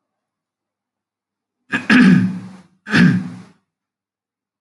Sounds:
Throat clearing